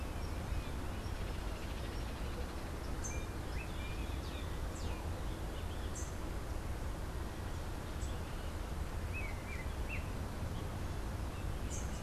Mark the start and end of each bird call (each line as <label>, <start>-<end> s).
Rufous-capped Warbler (Basileuterus rufifrons), 0.0-6.5 s
Melodious Blackbird (Dives dives), 2.7-6.2 s
unidentified bird, 9.0-10.2 s